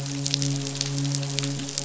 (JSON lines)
{"label": "biophony, midshipman", "recorder": "SoundTrap 500"}